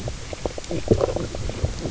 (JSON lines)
{"label": "biophony, knock croak", "recorder": "SoundTrap 300"}